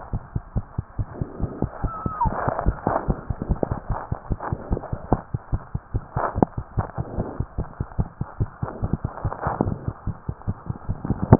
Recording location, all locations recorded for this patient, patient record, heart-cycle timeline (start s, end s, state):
tricuspid valve (TV)
aortic valve (AV)+pulmonary valve (PV)+tricuspid valve (TV)+mitral valve (MV)
#Age: Child
#Sex: Male
#Height: 91.0 cm
#Weight: 15.0 kg
#Pregnancy status: False
#Murmur: Present
#Murmur locations: aortic valve (AV)+pulmonary valve (PV)
#Most audible location: pulmonary valve (PV)
#Systolic murmur timing: Early-systolic
#Systolic murmur shape: Plateau
#Systolic murmur grading: I/VI
#Systolic murmur pitch: Low
#Systolic murmur quality: Harsh
#Diastolic murmur timing: nan
#Diastolic murmur shape: nan
#Diastolic murmur grading: nan
#Diastolic murmur pitch: nan
#Diastolic murmur quality: nan
#Outcome: Abnormal
#Campaign: 2015 screening campaign
0.00	0.11	unannotated
0.11	0.20	S1
0.20	0.33	systole
0.33	0.41	S2
0.41	0.54	diastole
0.54	0.62	S1
0.62	0.77	systole
0.77	0.82	S2
0.82	0.97	diastole
0.97	1.05	S1
1.05	1.19	systole
1.19	1.25	S2
1.25	1.40	diastole
1.40	1.47	S1
1.47	1.61	systole
1.61	1.68	S2
1.68	1.81	diastole
1.81	1.88	S1
1.88	2.04	systole
2.04	2.11	S2
2.11	2.23	diastole
2.23	2.31	S1
2.31	11.39	unannotated